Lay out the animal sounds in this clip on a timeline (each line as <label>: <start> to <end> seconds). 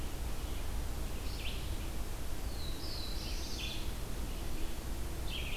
Red-eyed Vireo (Vireo olivaceus): 1.1 to 5.6 seconds
Black-throated Blue Warbler (Setophaga caerulescens): 2.4 to 4.0 seconds